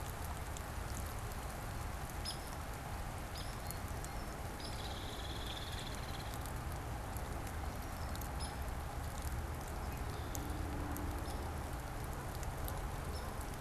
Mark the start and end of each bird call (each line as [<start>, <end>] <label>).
[2.13, 3.73] Hairy Woodpecker (Dryobates villosus)
[4.33, 6.63] Hairy Woodpecker (Dryobates villosus)
[7.63, 8.23] Red-winged Blackbird (Agelaius phoeniceus)
[8.23, 13.53] Hairy Woodpecker (Dryobates villosus)